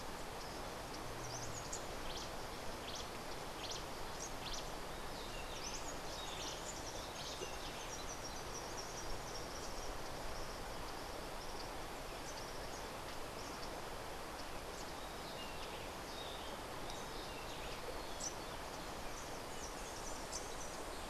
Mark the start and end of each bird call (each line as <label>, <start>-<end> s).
Cabanis's Wren (Cantorchilus modestus), 1.9-4.9 s
Rufous-breasted Wren (Pheugopedius rutilus), 5.3-7.7 s
White-eared Ground-Sparrow (Melozone leucotis), 7.1-10.0 s
Rufous-breasted Wren (Pheugopedius rutilus), 15.0-21.0 s